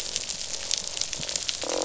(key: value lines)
label: biophony, croak
recorder: SoundTrap 500